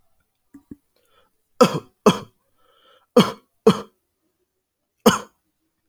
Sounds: Cough